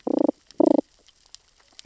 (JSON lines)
{"label": "biophony, damselfish", "recorder": "SoundTrap 600 or HydroMoth"}